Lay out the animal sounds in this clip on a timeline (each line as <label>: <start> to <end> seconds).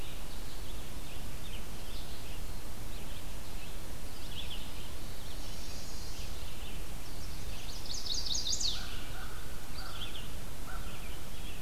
Red-eyed Vireo (Vireo olivaceus): 0.0 to 6.7 seconds
Chestnut-sided Warbler (Setophaga pensylvanica): 4.9 to 6.4 seconds
Chestnut-sided Warbler (Setophaga pensylvanica): 6.7 to 9.0 seconds
Red-eyed Vireo (Vireo olivaceus): 7.2 to 11.6 seconds
American Crow (Corvus brachyrhynchos): 8.6 to 11.1 seconds